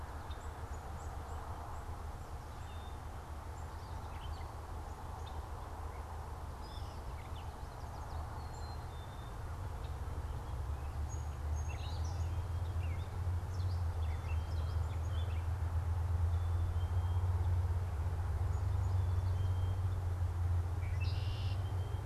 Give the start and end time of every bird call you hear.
0.0s-2.1s: Black-capped Chickadee (Poecile atricapillus)
3.5s-16.1s: Gray Catbird (Dumetella carolinensis)
7.1s-8.5s: Yellow Warbler (Setophaga petechia)
10.7s-13.1s: Song Sparrow (Melospiza melodia)
13.9s-17.4s: Black-capped Chickadee (Poecile atricapillus)
20.7s-21.7s: Red-winged Blackbird (Agelaius phoeniceus)

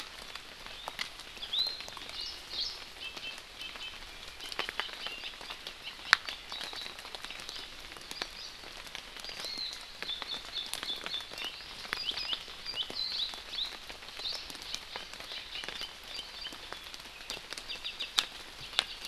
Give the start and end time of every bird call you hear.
1.4s-1.9s: Iiwi (Drepanis coccinea)
3.0s-4.0s: Iiwi (Drepanis coccinea)
9.2s-9.7s: Hawaii Amakihi (Chlorodrepanis virens)

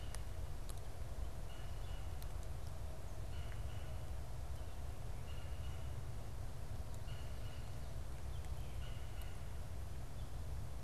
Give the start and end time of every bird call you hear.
1.3s-10.8s: Red-bellied Woodpecker (Melanerpes carolinus)

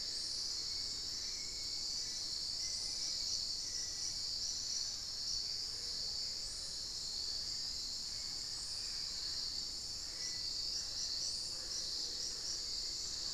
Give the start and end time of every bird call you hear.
0.0s-13.3s: Hauxwell's Thrush (Turdus hauxwelli)
6.5s-13.3s: Mealy Parrot (Amazona farinosa)

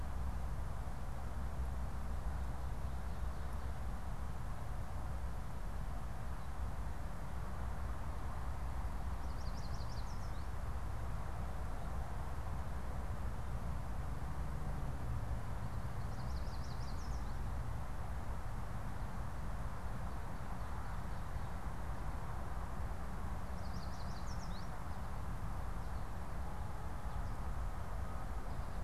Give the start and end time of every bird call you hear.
9.0s-10.6s: Yellow Warbler (Setophaga petechia)
15.8s-17.7s: Yellow Warbler (Setophaga petechia)
23.4s-24.9s: Yellow Warbler (Setophaga petechia)

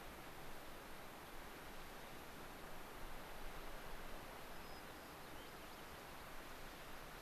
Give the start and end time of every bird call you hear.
4.5s-6.3s: White-crowned Sparrow (Zonotrichia leucophrys)

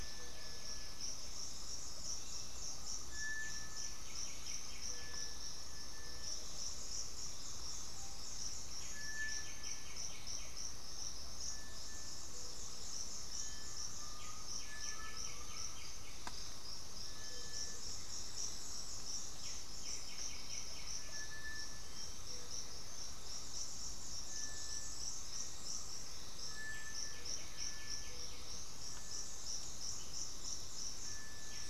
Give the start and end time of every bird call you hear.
0.0s-21.5s: White-winged Becard (Pachyramphus polychopterus)
0.0s-31.7s: Cinereous Tinamou (Crypturellus cinereus)
0.0s-31.7s: Gray-fronted Dove (Leptotila rufaxilla)
7.9s-8.3s: Screaming Piha (Lipaugus vociferans)
13.4s-22.4s: Bluish-fronted Jacamar (Galbula cyanescens)
13.6s-15.8s: Undulated Tinamou (Crypturellus undulatus)
26.5s-31.7s: White-winged Becard (Pachyramphus polychopterus)

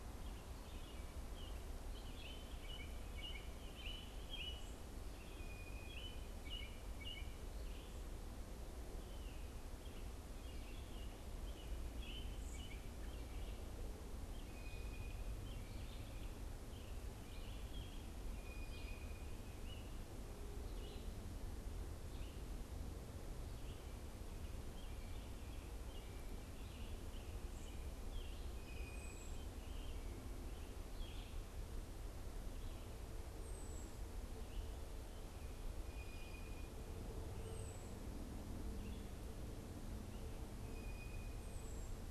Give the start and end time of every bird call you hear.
0.0s-31.6s: American Robin (Turdus migratorius)
5.0s-6.1s: Blue Jay (Cyanocitta cristata)
14.2s-19.7s: Blue Jay (Cyanocitta cristata)
28.4s-29.5s: Blue Jay (Cyanocitta cristata)
28.9s-42.1s: unidentified bird
35.7s-36.9s: Blue Jay (Cyanocitta cristata)
40.6s-41.5s: Blue Jay (Cyanocitta cristata)

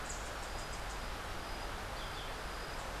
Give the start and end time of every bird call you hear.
0.0s-1.1s: Rufous-capped Warbler (Basileuterus rufifrons)
1.9s-2.4s: Yellow-throated Euphonia (Euphonia hirundinacea)

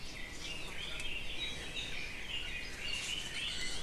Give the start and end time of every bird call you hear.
0.0s-3.7s: Red-billed Leiothrix (Leiothrix lutea)
3.2s-3.8s: Iiwi (Drepanis coccinea)

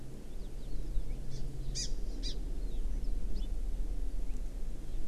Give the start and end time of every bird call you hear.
1.2s-1.4s: Hawaii Amakihi (Chlorodrepanis virens)
1.7s-1.9s: Hawaii Amakihi (Chlorodrepanis virens)
2.2s-2.3s: Hawaii Amakihi (Chlorodrepanis virens)

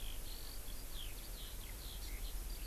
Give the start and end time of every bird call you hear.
0.0s-2.7s: Eurasian Skylark (Alauda arvensis)

